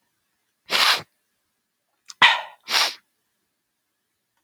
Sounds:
Sniff